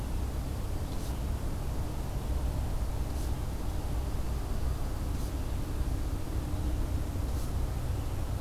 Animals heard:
forest ambience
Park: Acadia National Park